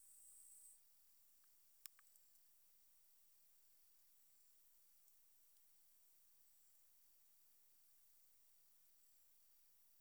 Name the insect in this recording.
Leptophyes punctatissima, an orthopteran